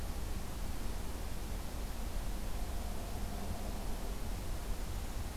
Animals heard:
forest ambience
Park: Acadia National Park